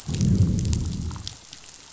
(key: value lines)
label: biophony, growl
recorder: SoundTrap 500